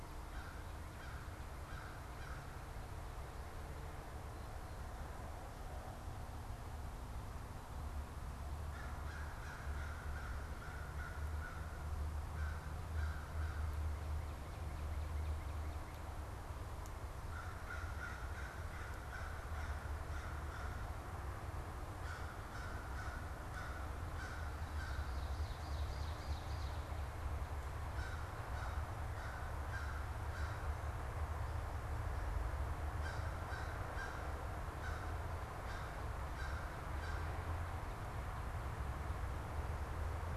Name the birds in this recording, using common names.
American Crow, Ovenbird